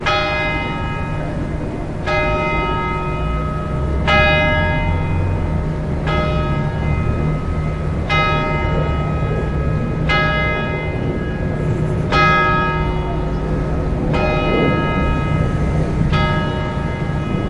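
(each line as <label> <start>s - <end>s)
A church bell chimes the hour loudly and clearly at intervals in an outdoor street environment. 0.0s - 17.5s
Birds singing softly in the distance, fading away. 0.0s - 17.5s
Cars passing by in a crowded street environment, low-pitched and distant. 0.0s - 17.5s
A car accelerates in the distance outdoors. 3.8s - 7.2s
Birds sing at a low pitch in the distance, fading away. 11.8s - 14.0s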